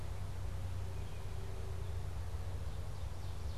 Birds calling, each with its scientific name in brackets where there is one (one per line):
Ovenbird (Seiurus aurocapilla)